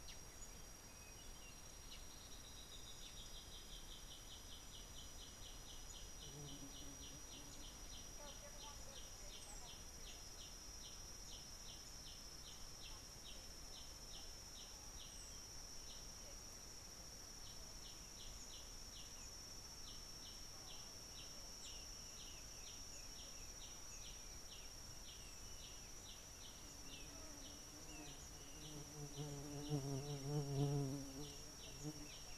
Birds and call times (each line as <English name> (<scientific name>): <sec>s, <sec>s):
Yellow-whiskered Greenbul (Eurillas latirostris): 8.0s, 25.6s
Kikuyu White-eye (Zosterops kikuyuensis): 28.0s